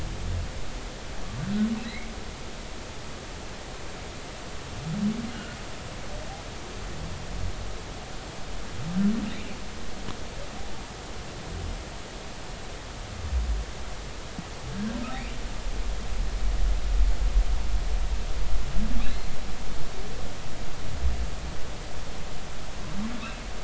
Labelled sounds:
5.3	5.6	humpback whale, 1.3 to 1.6 kHz

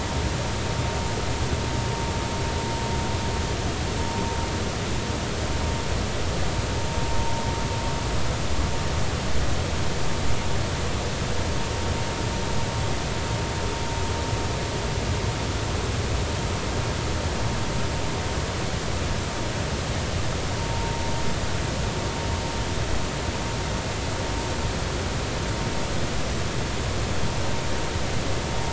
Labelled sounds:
20.6	21.0	vessel noise, 0.86 to 0.96 kHz

